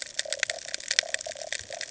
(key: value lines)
label: ambient
recorder: HydroMoth